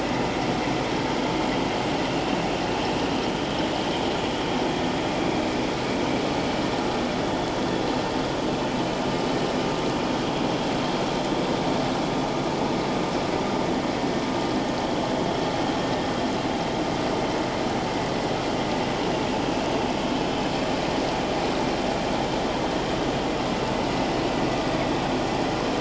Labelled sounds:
5.2	5.5	vessel noise, 2.2 to 2.4 kHz

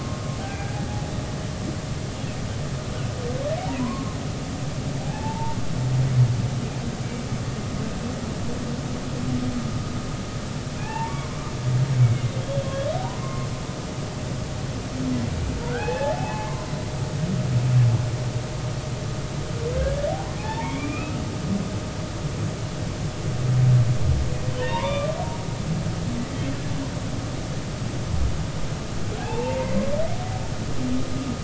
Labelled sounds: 0.4	0.7	humpback whale, 1.5 to 1.7 kHz
3.7	5.6	humpback whale, 0.80 to 1.2 kHz
10.8	11.4	humpback whale, 0.80 to 2.8 kHz
13.2	13.5	humpback whale, 0.99 to 1.1 kHz
15.7	16.7	humpback whale, 0.80 to 2.8 kHz
19.8	21.2	humpback whale, 0.80 to 2.6 kHz
24.6	25.2	humpback whale, 0.86 to 2.5 kHz
29.2	29.7	humpback whale, 0.80 to 2.8 kHz

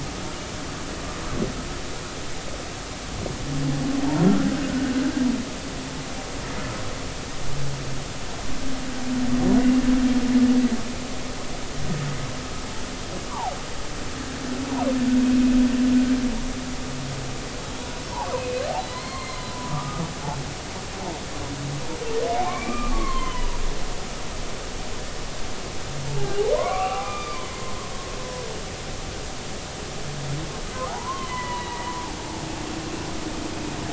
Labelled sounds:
4.6	4.9	humpback whale, 1.4 to 1.6 kHz
13.3	13.6	humpback whale, 0.80 to 1.2 kHz
18.4	19.5	humpback whale, 0.96 to 4.3 kHz
19.7	20.0	humpback whale, 1.1 to 1.3 kHz
22.4	23.5	humpback whale, 0.93 to 3.2 kHz
26.1	27.6	humpback whale, 0.80 to 2.8 kHz
30.9	32.9	humpback whale, 0.80 to 3.2 kHz

